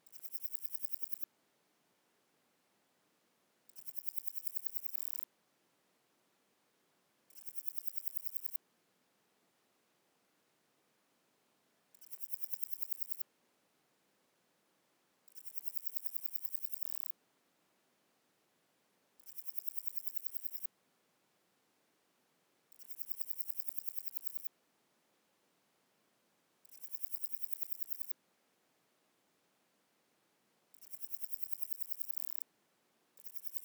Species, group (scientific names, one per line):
Parnassiana coracis
Orthoptera